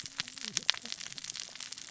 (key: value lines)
label: biophony, cascading saw
recorder: SoundTrap 600 or HydroMoth